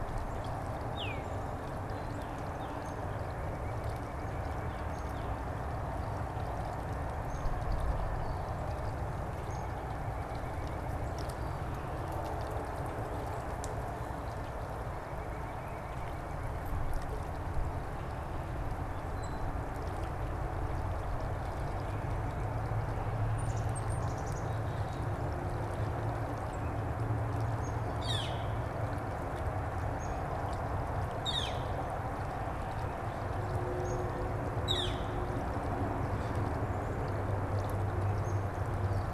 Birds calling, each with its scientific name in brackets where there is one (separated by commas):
Tufted Titmouse (Baeolophus bicolor), Northern Flicker (Colaptes auratus), unidentified bird, White-breasted Nuthatch (Sitta carolinensis), Black-capped Chickadee (Poecile atricapillus)